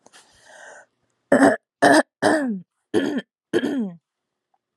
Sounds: Throat clearing